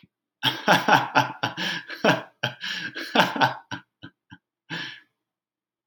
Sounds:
Laughter